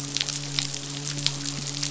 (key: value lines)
label: biophony, midshipman
recorder: SoundTrap 500